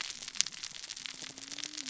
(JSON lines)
{"label": "biophony, cascading saw", "recorder": "SoundTrap 600 or HydroMoth"}